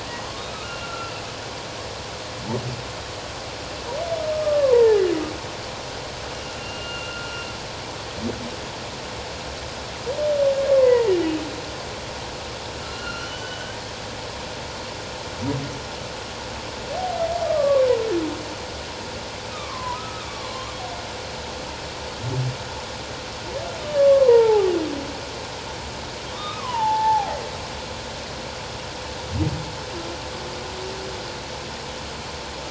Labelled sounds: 0.6	1.2	humpback whale, 1.3 to 2.9 kHz
4.3	5.0	humpback whale, 0.81 to 2.0 kHz
6.6	7.3	humpback whale, 1.3 to 2.9 kHz
10.7	11.1	humpback whale, 0.84 to 1.2 kHz
12.8	13.8	humpback whale, 1.3 to 5.8 kHz
17.4	17.9	humpback whale, 1.0 to 1.3 kHz
19.5	20.7	humpback whale, 0.91 to 1.3 kHz
23.8	24.7	humpback whale, 0.78 to 1.2 kHz
26.3	27.4	humpback whale, 0.78 to 3.8 kHz

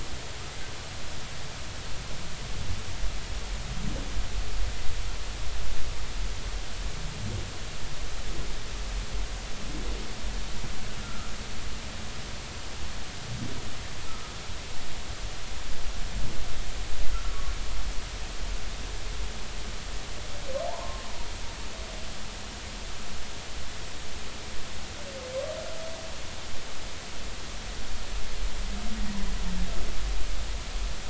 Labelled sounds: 11.0	11.3	humpback whale, 1.2 to 1.4 kHz
14.0	14.3	humpback whale, 1.2 to 1.4 kHz
17.1	17.5	humpback whale, 1.0 to 1.5 kHz
20.7	21.0	humpback whale, 0.80 to 1.1 kHz

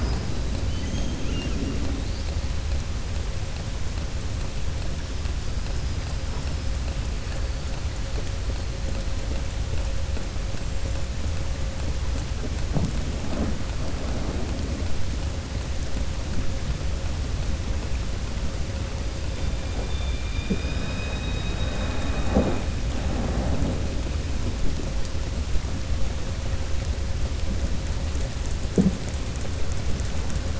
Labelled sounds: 0.6	1.6	killer whale, southern resident, 2.4 to 4.2 kHz

